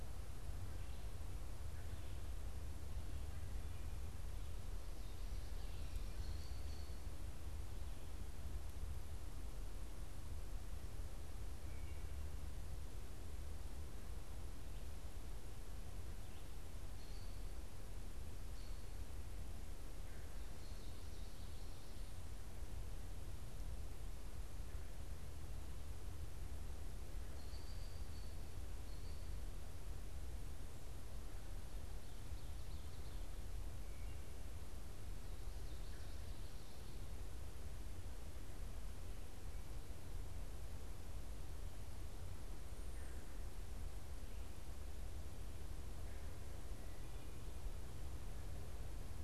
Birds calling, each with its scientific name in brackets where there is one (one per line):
American Robin (Turdus migratorius)